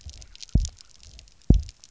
{"label": "biophony, double pulse", "recorder": "SoundTrap 300"}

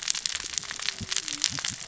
{"label": "biophony, cascading saw", "recorder": "SoundTrap 600 or HydroMoth"}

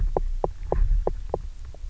{"label": "biophony, knock", "recorder": "SoundTrap 300"}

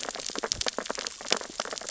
{"label": "biophony, sea urchins (Echinidae)", "recorder": "SoundTrap 600 or HydroMoth"}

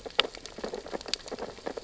{"label": "biophony, sea urchins (Echinidae)", "recorder": "SoundTrap 600 or HydroMoth"}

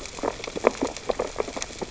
{"label": "biophony, sea urchins (Echinidae)", "recorder": "SoundTrap 600 or HydroMoth"}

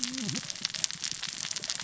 {"label": "biophony, cascading saw", "recorder": "SoundTrap 600 or HydroMoth"}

